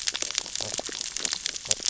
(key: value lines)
label: biophony, stridulation
recorder: SoundTrap 600 or HydroMoth

label: biophony, sea urchins (Echinidae)
recorder: SoundTrap 600 or HydroMoth